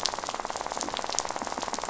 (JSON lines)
{"label": "biophony, rattle", "recorder": "SoundTrap 500"}